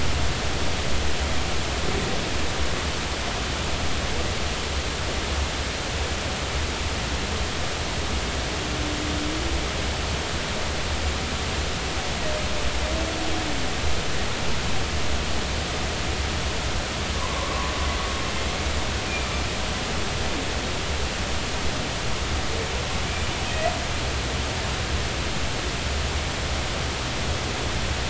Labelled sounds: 17.1	17.7	humpback whale, 0.96 to 1.2 kHz

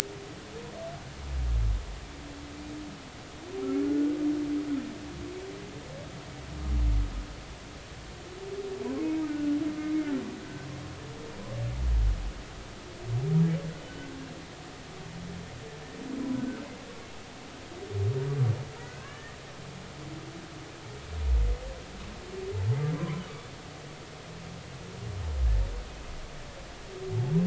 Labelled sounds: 3.8	4.2	humpback whale, 1.4 to 1.5 kHz
9.3	10.1	humpback whale, 1.4 to 2.2 kHz
13.9	14.2	humpback whale, 1.4 to 1.6 kHz
16.3	16.6	humpback whale, 1.3 to 1.6 kHz
18.8	19.4	humpback whale, 1.4 to 3.0 kHz
23.0	23.2	humpback whale, 0.96 to 1.2 kHz

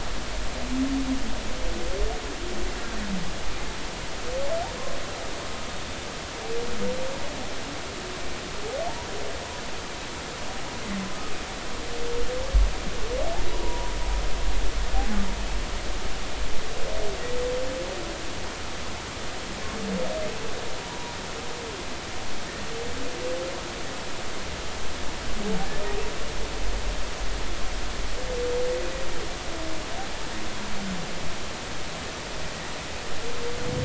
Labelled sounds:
13.5	13.9	humpback whale, 0.93 to 1.1 kHz
20.8	21.2	humpback whale, 0.90 to 1.0 kHz

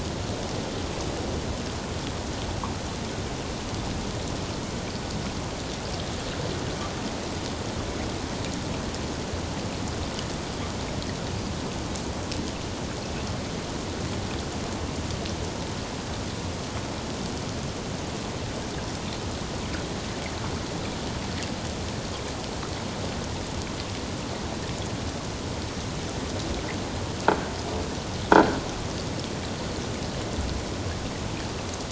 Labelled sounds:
28.3	28.6	croaking sound likely from a nearby submerged object, 1.3 to 1.7 kHz

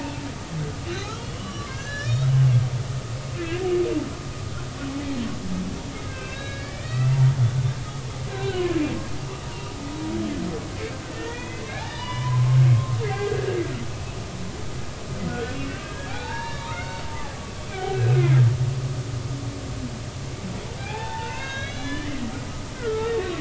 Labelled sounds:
0.9	2.3	humpback whale, 0.99 to 5.6 kHz
6.0	7.2	humpback whale, 1.2 to 4.6 kHz
8.3	8.7	humpback whale, 1.4 to 4.1 kHz
9.5	9.8	humpback whale, 0.90 to 0.99 kHz
10.7	13.6	humpback whale, 0.86 to 5.0 kHz
15.3	17.0	humpback whale, 0.80 to 4.1 kHz
17.7	18.2	humpback whale, 2.2 to 2.7 kHz
20.8	22.3	humpback whale, 0.80 to 6.3 kHz
22.7	23.3	humpback whale, 1.1 to 1.6 kHz

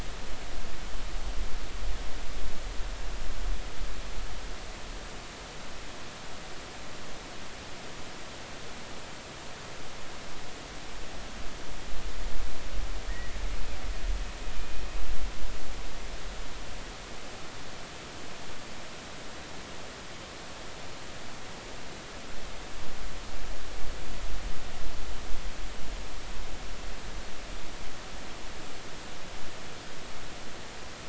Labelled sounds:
14.5	14.8	killer whale, Bigg's (transient), call T12, 2.4 to 2.5 kHz

